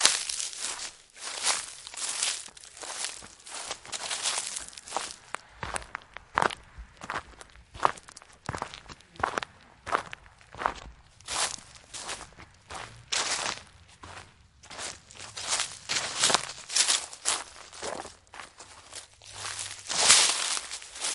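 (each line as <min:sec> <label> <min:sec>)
0:00.0 Footsteps on fallen leaves and gravel outdoors. 0:21.1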